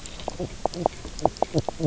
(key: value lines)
label: biophony, knock croak
recorder: SoundTrap 300